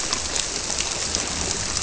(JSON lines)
{"label": "biophony", "recorder": "SoundTrap 300"}